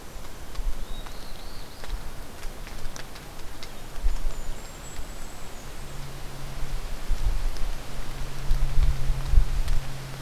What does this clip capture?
Black-throated Blue Warbler, Golden-crowned Kinglet